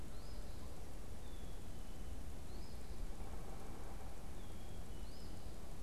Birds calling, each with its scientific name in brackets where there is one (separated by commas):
Black-capped Chickadee (Poecile atricapillus), unidentified bird, Eastern Phoebe (Sayornis phoebe)